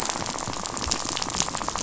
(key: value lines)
label: biophony, rattle
recorder: SoundTrap 500